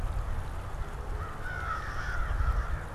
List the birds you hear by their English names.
American Crow